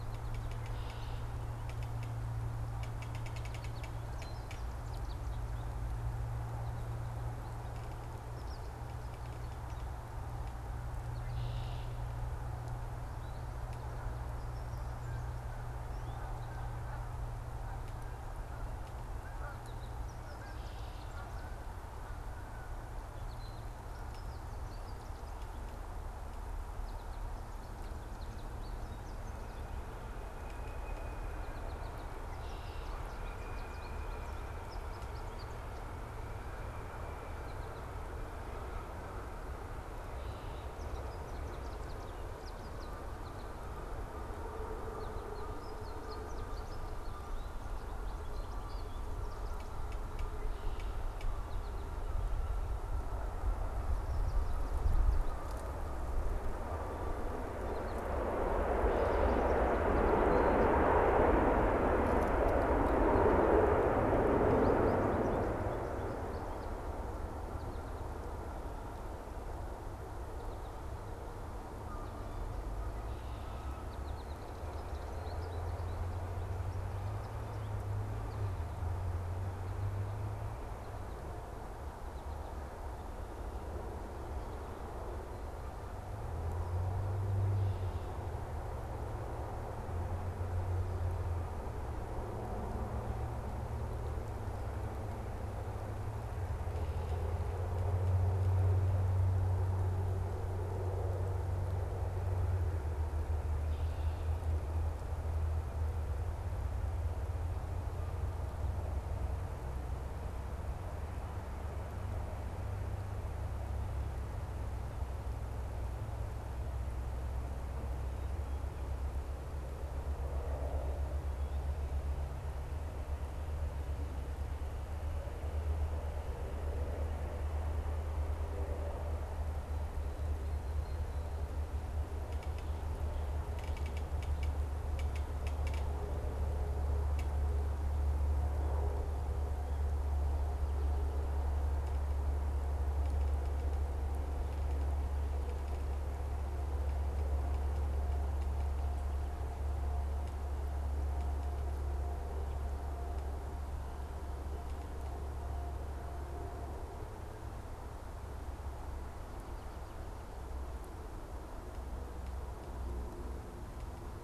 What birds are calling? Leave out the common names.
Spinus tristis, Agelaius phoeniceus, unidentified bird